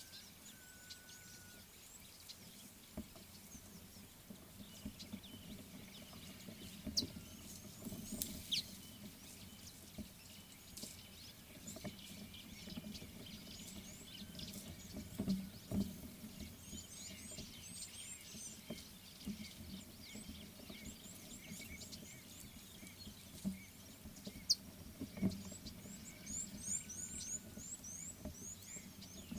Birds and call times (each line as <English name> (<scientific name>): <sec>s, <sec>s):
Scarlet-chested Sunbird (Chalcomitra senegalensis): 6.9s
Red-cheeked Cordonbleu (Uraeginthus bengalus): 17.7s, 27.1s
White-bellied Go-away-bird (Corythaixoides leucogaster): 21.5s